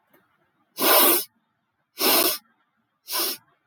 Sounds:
Sniff